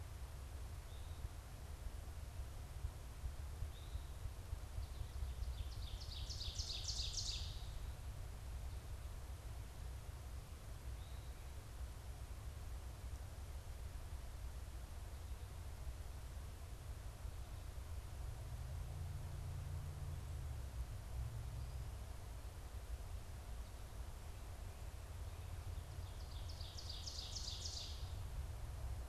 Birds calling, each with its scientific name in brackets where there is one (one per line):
Eastern Towhee (Pipilo erythrophthalmus)
Ovenbird (Seiurus aurocapilla)